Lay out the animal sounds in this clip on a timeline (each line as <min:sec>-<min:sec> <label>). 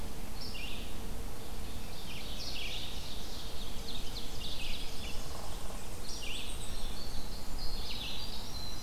0:00.0-0:08.8 Red-eyed Vireo (Vireo olivaceus)
0:01.4-0:04.7 Ovenbird (Seiurus aurocapilla)
0:04.0-0:06.3 Tennessee Warbler (Leiothlypis peregrina)
0:05.8-0:07.0 Blackpoll Warbler (Setophaga striata)
0:06.0-0:08.8 Winter Wren (Troglodytes hiemalis)
0:06.0-0:06.2 Hairy Woodpecker (Dryobates villosus)